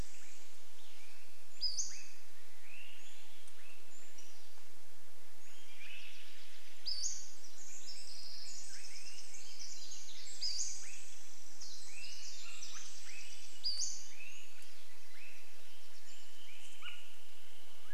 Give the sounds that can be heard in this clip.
Pacific-slope Flycatcher call, Swainson's Thrush call, Pacific-slope Flycatcher song, Steller's Jay call, Pacific Wren song, Swainson's Thrush song